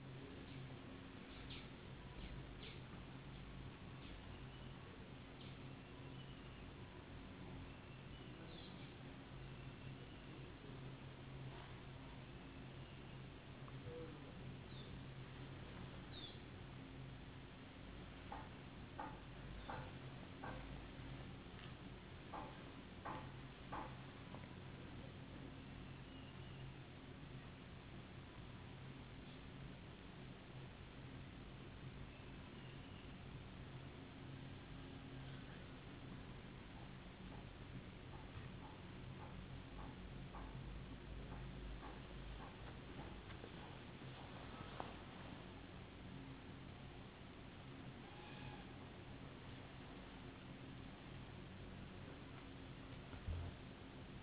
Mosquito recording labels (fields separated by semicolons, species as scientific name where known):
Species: no mosquito; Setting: insect culture